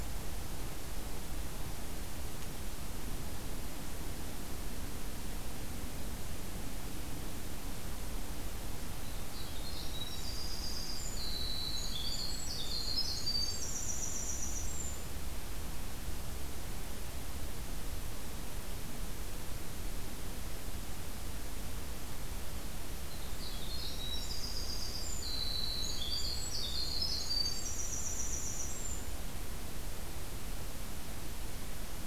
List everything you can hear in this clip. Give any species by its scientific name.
Troglodytes hiemalis